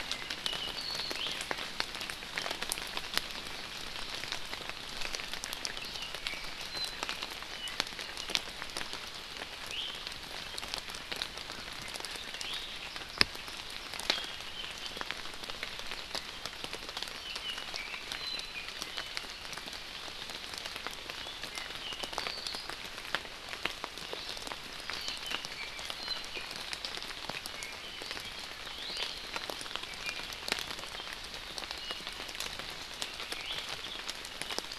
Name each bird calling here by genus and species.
Himatione sanguinea, Drepanis coccinea